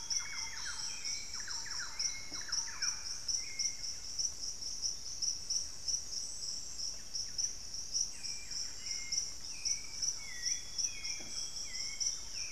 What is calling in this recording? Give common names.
Amazonian Grosbeak, Thrush-like Wren, Buff-breasted Wren, Hauxwell's Thrush, White-bellied Tody-Tyrant